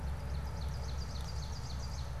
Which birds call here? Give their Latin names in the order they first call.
Seiurus aurocapilla